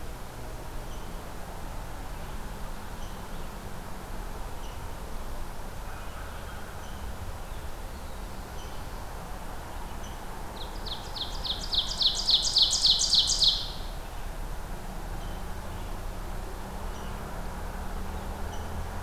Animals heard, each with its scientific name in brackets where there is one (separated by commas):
American Crow (Corvus brachyrhynchos), Rose-breasted Grosbeak (Pheucticus ludovicianus), Ovenbird (Seiurus aurocapilla)